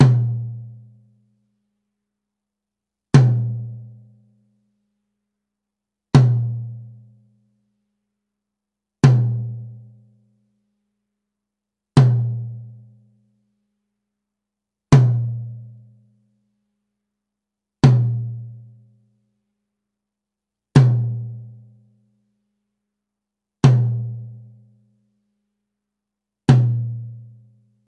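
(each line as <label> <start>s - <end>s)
The drum rack tom sounds evenly repeated. 0.0s - 27.9s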